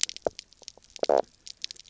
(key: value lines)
label: biophony, knock croak
recorder: SoundTrap 300